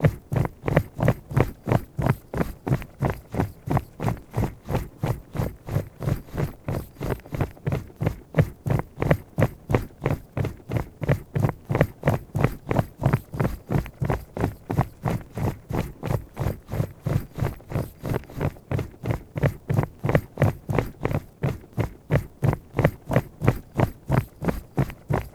Is there water flowing?
no